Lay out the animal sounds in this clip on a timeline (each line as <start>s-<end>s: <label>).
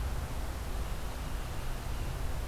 0.6s-2.5s: Tufted Titmouse (Baeolophus bicolor)